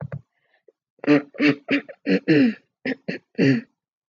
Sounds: Throat clearing